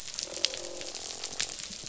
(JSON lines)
{"label": "biophony, croak", "recorder": "SoundTrap 500"}